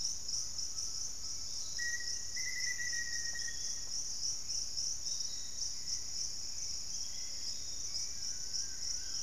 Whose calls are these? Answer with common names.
Piratic Flycatcher, Undulated Tinamou, Black-faced Antthrush, Pygmy Antwren, unidentified bird, Collared Trogon, Fasciated Antshrike